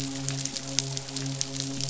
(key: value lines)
label: biophony, midshipman
recorder: SoundTrap 500